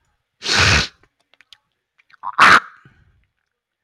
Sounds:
Throat clearing